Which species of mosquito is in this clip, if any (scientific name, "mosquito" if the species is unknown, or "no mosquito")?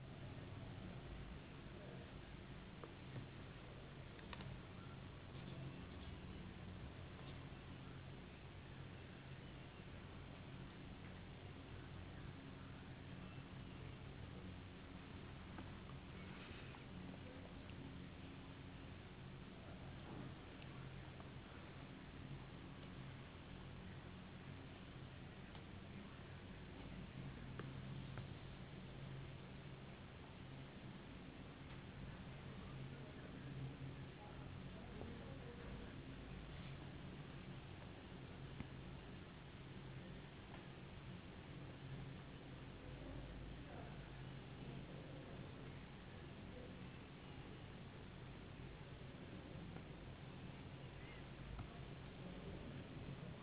no mosquito